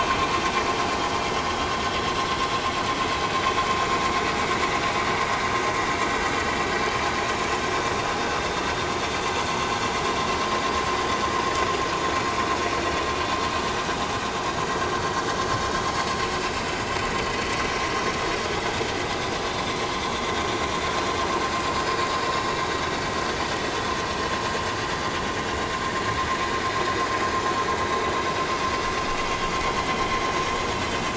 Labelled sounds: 18.5	18.8	vessel noise, 3.2 to 3.5 kHz
19.5	19.8	vessel noise, 3.4 to 3.7 kHz
22.1	22.5	vessel noise, 5.1 to 5.3 kHz

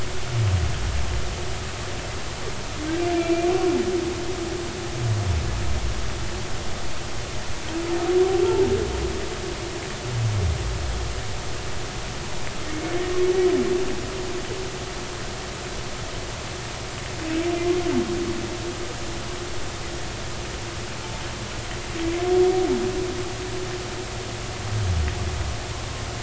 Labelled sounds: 3.2	3.5	humpback whale, 2.3 to 2.5 kHz

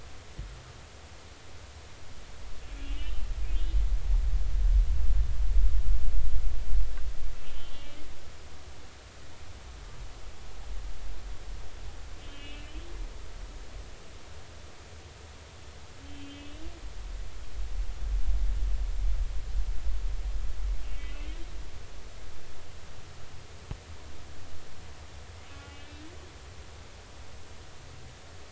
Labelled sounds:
2.8	3.8	humpback whale, 2.7 to 3.2 kHz
7.4	8.0	humpback whale, 2.8 to 3.4 kHz
12.2	12.8	humpback whale, 2.5 to 3.2 kHz
16.0	16.6	humpback whale, 2.6 to 3.3 kHz
20.9	21.3	humpback whale, 2.1 to 3.2 kHz
25.5	26.0	humpback whale, 1.4 to 2.9 kHz

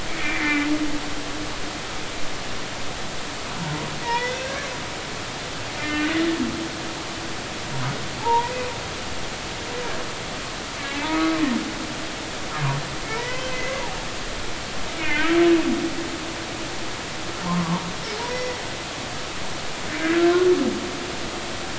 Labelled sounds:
0.1	0.7	humpback whale, 1.7 to 2.5 kHz
4.0	4.7	humpback whale, 0.86 to 3.7 kHz
5.8	6.1	humpback whale, 1.8 to 2.8 kHz
8.2	8.5	humpback whale, 0.80 to 1.0 kHz
11.0	11.4	humpback whale, 1.2 to 1.3 kHz
13.2	13.8	humpback whale, 0.93 to 3.2 kHz
15.0	15.4	humpback whale, 1.4 to 2.7 kHz
17.4	17.8	humpback whale, 0.86 to 1.2 kHz
18.3	18.6	humpback whale, 1.9 to 4.6 kHz

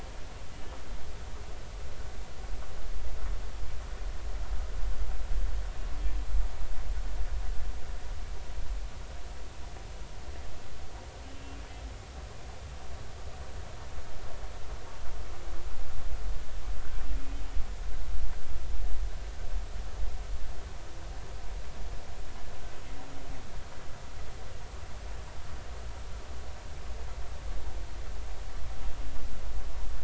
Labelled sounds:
11.2	11.6	humpback whale, 2.7 to 3.1 kHz
17.1	17.4	humpback whale, 2.4 to 2.6 kHz

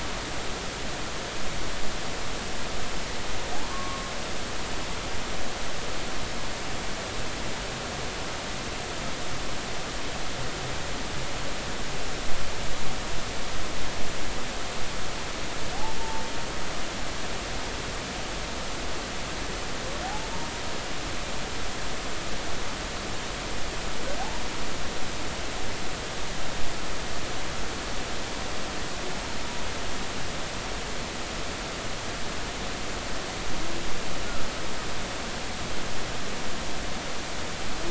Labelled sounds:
3.7	4.1	humpback whale, 1.0 to 1.2 kHz
16.0	16.2	humpback whale, 0.83 to 0.96 kHz
20.0	20.3	humpback whale, 0.80 to 0.93 kHz

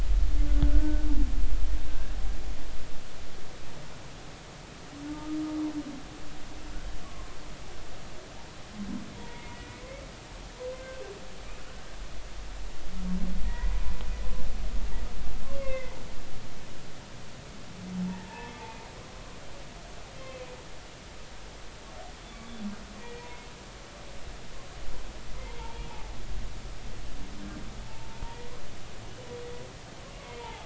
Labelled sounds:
0.7	1.1	humpback whale, 1.4 to 1.6 kHz
1.9	2.1	humpback whale, 1.5 to 1.7 kHz
7.0	7.4	humpback whale, 1.0 to 1.2 kHz
9.1	9.5	humpback whale, 0.86 to 2.0 kHz
14.4	16.0	humpback whale, 0.99 to 2.2 kHz
18.0	18.5	humpback whale, 0.80 to 0.99 kHz
20.2	20.6	humpback whale, 2.0 to 2.7 kHz
23.0	23.3	humpback whale, 1.9 to 2.4 kHz
25.6	26.1	humpback whale, 0.80 to 0.99 kHz
27.8	28.5	humpback whale, 0.83 to 0.99 kHz
30.4	30.6	humpback whale, 0.80 to 0.99 kHz

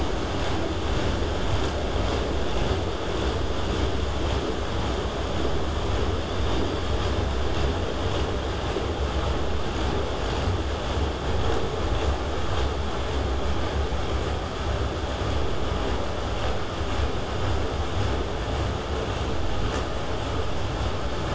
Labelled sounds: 6.2	7.0	killer whale, southern resident, K pod, call S16, 3.1 to 5.1 kHz

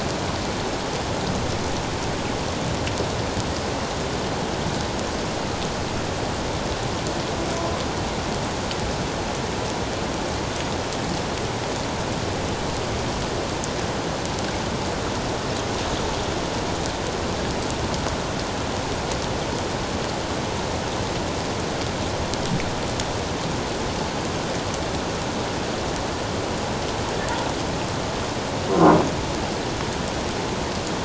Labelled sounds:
28.7	29.0	croaking sound likely from a nearby submerged object, 0.91 to 1.1 kHz

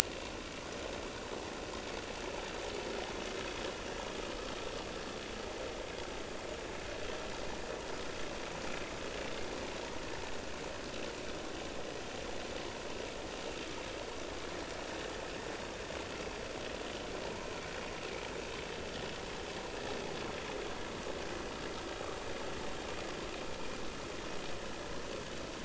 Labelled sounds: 17.3	17.6	vessel noise, 0.86 to 1.1 kHz

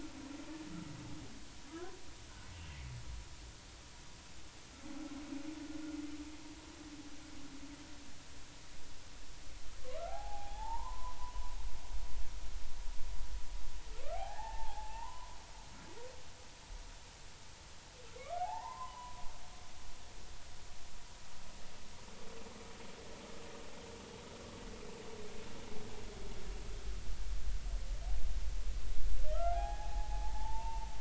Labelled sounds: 1.7	1.9	humpback whale, 1.1 to 1.6 kHz
10.0	11.2	humpback whale, 0.80 to 1.5 kHz
14.1	15.4	humpback whale, 0.80 to 1.9 kHz
18.2	19.2	humpback whale, 0.80 to 2.4 kHz
29.5	30.9	humpback whale, 0.80 to 2.8 kHz

